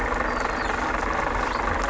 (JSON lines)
{"label": "anthrophony, boat engine", "recorder": "SoundTrap 500"}